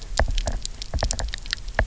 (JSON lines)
{"label": "biophony, knock", "recorder": "SoundTrap 300"}